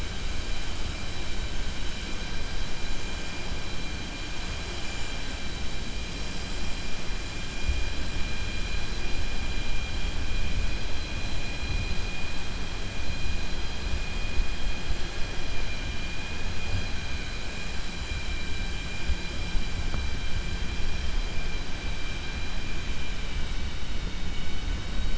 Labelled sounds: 24.0	24.6	vessel noise, 2.2 to 4.5 kHz

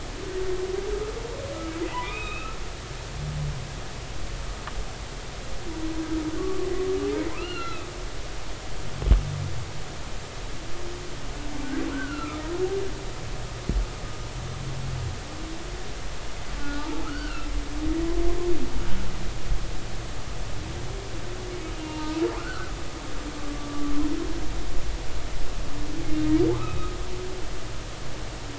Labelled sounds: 2.0	2.6	humpback whale, 1.2 to 3.9 kHz
6.4	7.9	humpback whale, 1.0 to 4.4 kHz
11.9	12.5	humpback whale, 1.2 to 1.6 kHz
16.6	18.1	humpback whale, 1.2 to 2.0 kHz
21.8	22.7	humpback whale, 0.86 to 2.9 kHz
26.5	27.0	humpback whale, 0.99 to 3.9 kHz

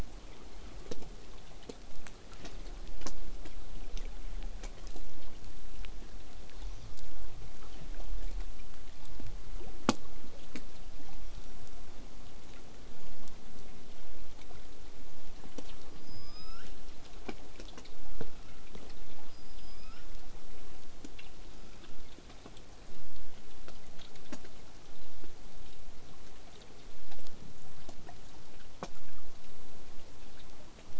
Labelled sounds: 15.9	16.7	killer whale, southern resident, L pod, call S19, 0.97 to 8.0 kHz
19.3	20.1	killer whale, southern resident, L pod, call S19, 1.0 to 8.0 kHz

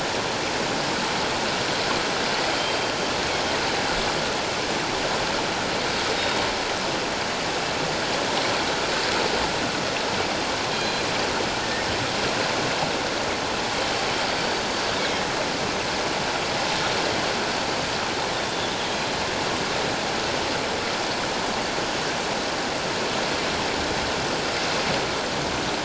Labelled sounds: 2.5	2.9	killer whale, northern resident, G clan, 3.1 to 3.3 kHz
6.2	6.4	killer whale, northern resident, G clan, 3.7 to 3.8 kHz
10.7	11.1	killer whale, northern resident, G clan, 3.2 to 4.1 kHz
18.4	18.7	killer whale, northern resident, G clan, 3.3 to 3.7 kHz

